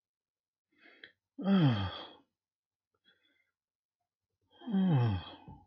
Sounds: Sigh